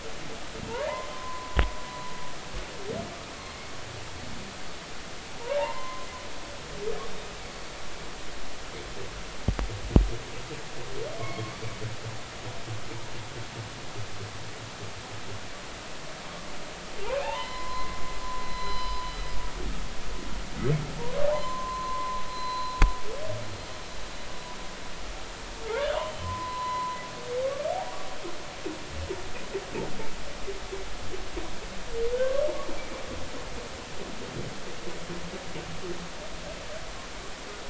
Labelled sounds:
0.6	1.6	humpback whale, 0.96 to 2.9 kHz
5.6	6.1	humpback whale, 0.80 to 2.2 kHz
11.2	11.5	humpback whale, 1.0 to 4.4 kHz
17.2	18.0	humpback whale, 0.80 to 4.2 kHz
18.4	19.0	humpback whale, 3.0 to 5.1 kHz
21.3	22.8	humpback whale, 0.80 to 4.2 kHz
25.6	27.0	humpback whale, 0.93 to 4.1 kHz
32.1	32.5	humpback whale, 1.0 to 1.6 kHz

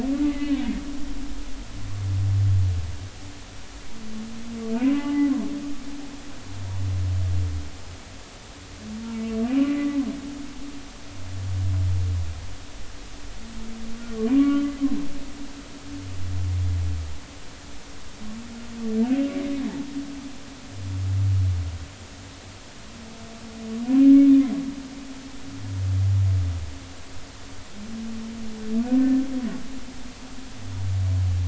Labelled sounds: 0.2	0.6	humpback whale, 1.9 to 2.2 kHz
4.7	5.3	humpback whale, 0.80 to 2.9 kHz
9.5	10.0	humpback whale, 1.9 to 3.0 kHz
14.3	14.6	humpback whale, 0.96 to 2.9 kHz
29.0	29.2	humpback whale, 1.7 to 1.8 kHz

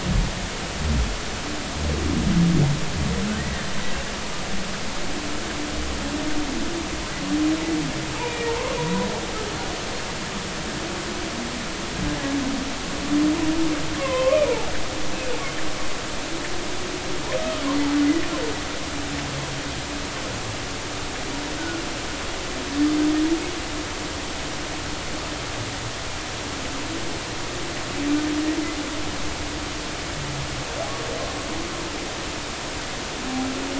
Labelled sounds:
3.4	3.7	humpback whale, 1.7 to 2.0 kHz
8.2	9.1	humpback whale, 0.83 to 2.5 kHz
14.0	14.4	humpback whale, 0.96 to 2.8 kHz
17.4	17.7	humpback whale, 1.2 to 1.3 kHz

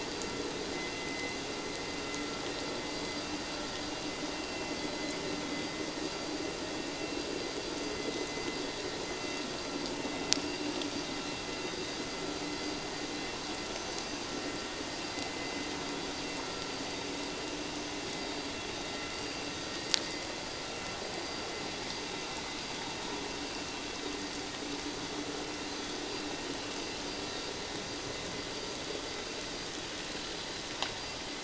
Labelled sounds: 4.3	4.7	vessel noise, 2.7 to 2.8 kHz
13.7	14.0	vessel noise, 6.0 to 6.2 kHz

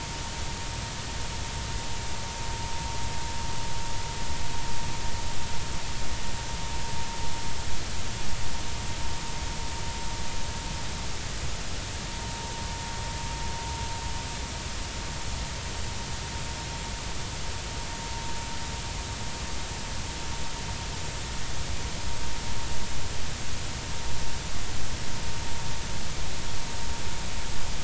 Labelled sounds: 12.2	12.5	vessel noise, 0.86 to 0.96 kHz

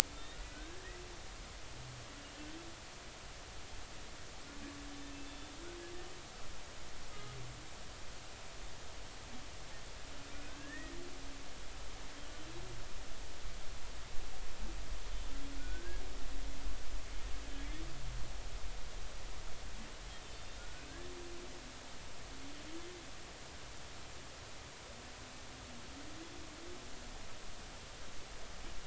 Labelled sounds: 0.5	1.0	humpback whale, 1.4 to 2.0 kHz
5.2	5.5	humpback whale, 3.5 to 3.6 kHz
10.5	11.0	humpback whale, 1.5 to 2.0 kHz
15.6	16.0	humpback whale, 1.4 to 1.8 kHz
20.1	20.9	humpback whale, 1.4 to 3.8 kHz

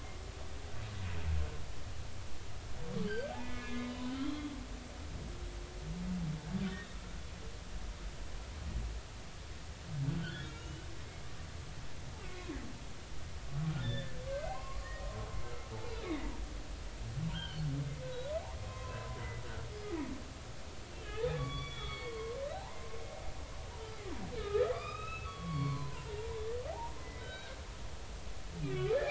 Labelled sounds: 3.1	4.5	humpback whale, 0.80 to 3.8 kHz
10.2	10.9	humpback whale, 1.3 to 3.0 kHz
12.3	12.6	humpback whale, 0.99 to 1.1 kHz
13.8	16.3	humpback whale, 0.83 to 3.8 kHz
17.3	17.6	humpback whale, 1.4 to 3.3 kHz
18.0	19.2	humpback whale, 0.93 to 1.6 kHz
21.0	23.0	humpback whale, 0.80 to 4.5 kHz
24.4	26.1	humpback whale, 0.90 to 5.1 kHz
26.7	27.6	humpback whale, 0.80 to 3.9 kHz
28.6	29.0	humpback whale, 1.1 to 2.5 kHz

